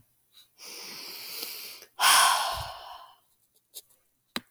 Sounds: Sigh